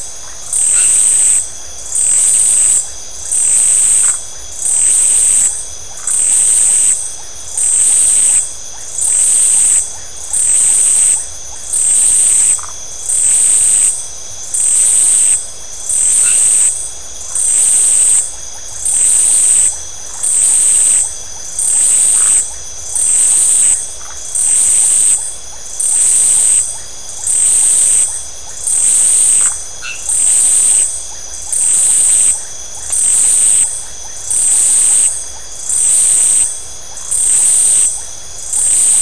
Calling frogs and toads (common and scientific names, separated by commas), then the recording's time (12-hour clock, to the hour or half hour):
Iporanga white-lipped frog (Leptodactylus notoaktites), Phyllomedusa distincta, white-edged tree frog (Boana albomarginata)
10:30pm